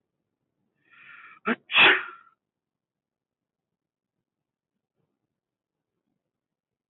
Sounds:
Sneeze